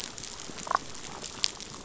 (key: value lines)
label: biophony, damselfish
recorder: SoundTrap 500